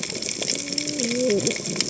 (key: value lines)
label: biophony, cascading saw
recorder: HydroMoth